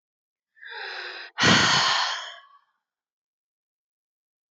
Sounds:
Sigh